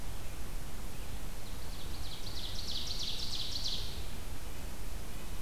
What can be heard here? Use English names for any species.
Ovenbird